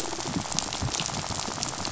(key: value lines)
label: biophony, rattle
recorder: SoundTrap 500